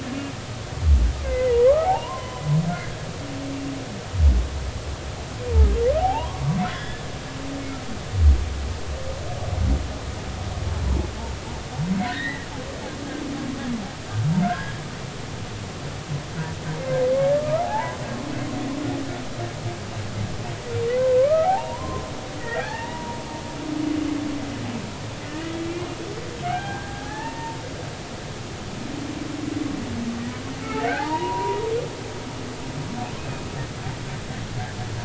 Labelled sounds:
1.2	1.7	humpback whale, 0.90 to 2.2 kHz
2.8	3.4	humpback whale, 0.80 to 1.1 kHz
6.0	7.0	humpback whale, 0.80 to 3.5 kHz
12.0	12.5	humpback whale, 1.4 to 4.1 kHz
14.4	14.7	humpback whale, 1.3 to 1.8 kHz
17.4	18.0	humpback whale, 0.80 to 1.4 kHz
21.2	22.1	humpback whale, 0.80 to 1.4 kHz
22.4	23.2	humpback whale, 0.80 to 2.9 kHz
25.3	25.5	humpback whale, 1.8 to 2.0 kHz
26.4	27.6	humpback whale, 0.80 to 1.9 kHz
30.6	31.6	humpback whale, 0.80 to 1.4 kHz
33.2	33.5	humpback whale, 2.4 to 2.6 kHz

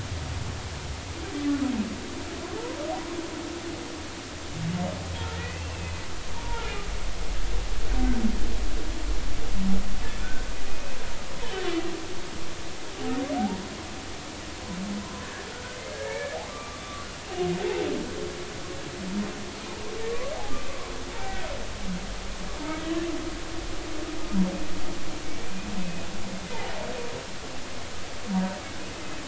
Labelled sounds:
5.3	6.6	humpback whale, 0.86 to 2.8 kHz
10.2	11.0	humpback whale, 1.4 to 2.6 kHz
15.5	16.8	humpback whale, 1.1 to 2.4 kHz
21.2	21.5	humpback whale, 1.5 to 1.6 kHz
25.8	26.1	humpback whale, 2.5 to 2.6 kHz

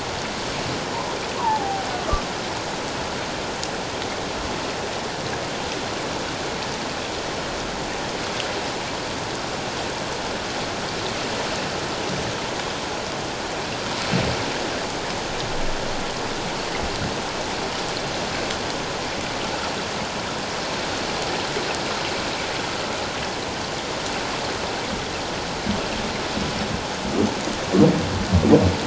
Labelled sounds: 1.4	1.9	humpback whale, 0.78 to 1.2 kHz

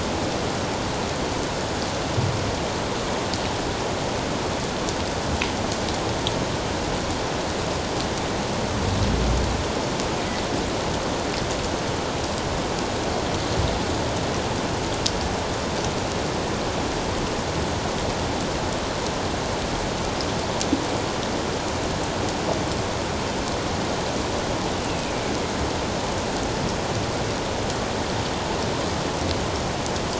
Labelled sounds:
24.8	25.1	killer whale, northern resident, A clan, AA subclan, A04 pod, 2.4 to 2.8 kHz

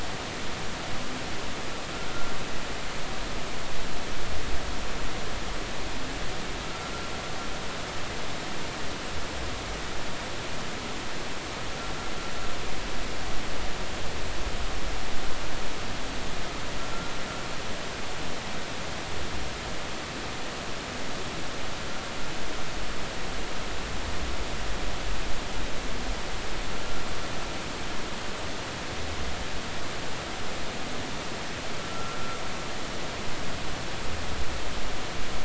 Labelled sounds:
6.6	6.9	humpback whale, 1.2 to 1.4 kHz
31.9	32.2	humpback whale, 1.2 to 1.4 kHz

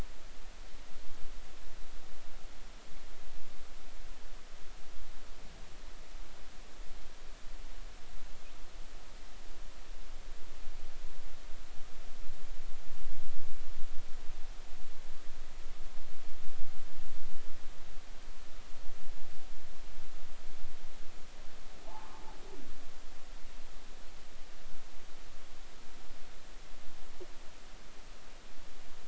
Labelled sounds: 21.8	22.2	humpback whale, 0.80 to 1.1 kHz

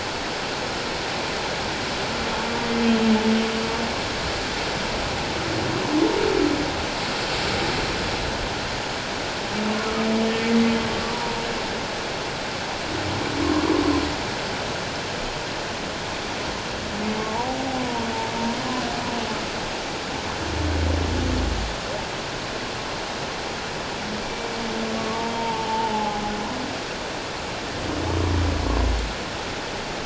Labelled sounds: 13.4	13.7	humpback whale, 1.0 to 1.2 kHz
17.8	18.1	humpback whale, 0.88 to 1.0 kHz
25.0	26.2	humpback whale, 0.78 to 1.2 kHz

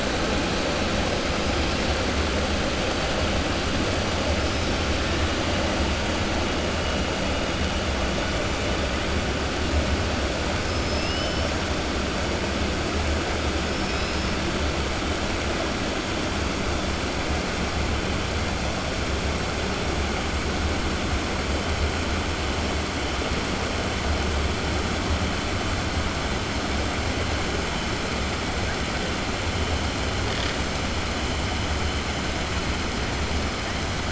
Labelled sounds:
10.7	11.5	killer whale, 4.4 to 6.0 kHz
13.7	14.3	killer whale, 2.5 to 6.2 kHz

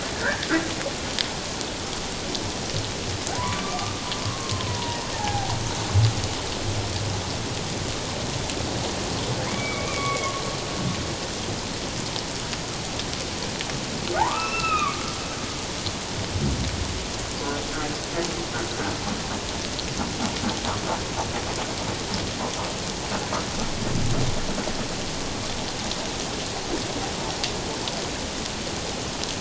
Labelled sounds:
0.2	0.5	humpback whale, 1.3 to 1.9 kHz
3.4	5.5	humpback whale, 0.78 to 1.3 kHz
9.5	10.3	humpback whale, 1.1 to 2.4 kHz
14.2	15.0	humpback whale, 0.78 to 2.8 kHz

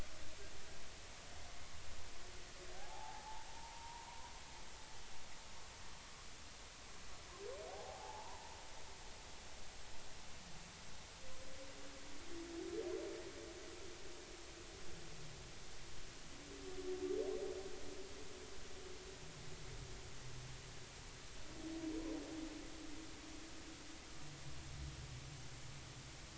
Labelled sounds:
2.8	4.2	humpback whale, 0.80 to 1.1 kHz
7.7	8.5	humpback whale, 0.80 to 1.0 kHz

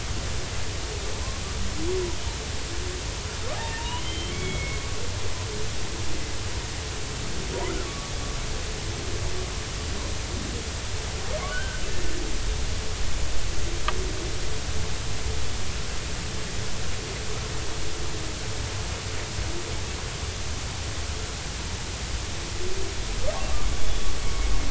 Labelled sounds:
3.6	4.8	humpback whale, 0.86 to 3.4 kHz
7.9	8.1	humpback whale, 1.1 to 1.2 kHz
11.5	11.8	humpback whale, 1.4 to 1.6 kHz
23.8	24.1	humpback whale, 3.3 to 3.6 kHz

